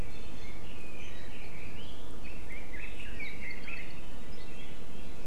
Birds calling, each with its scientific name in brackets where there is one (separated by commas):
Red-billed Leiothrix (Leiothrix lutea), Apapane (Himatione sanguinea)